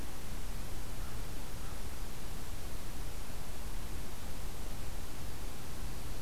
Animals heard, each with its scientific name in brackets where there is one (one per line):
American Crow (Corvus brachyrhynchos)